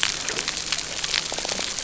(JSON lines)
{"label": "biophony", "recorder": "SoundTrap 300"}